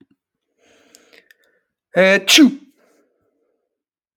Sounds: Sneeze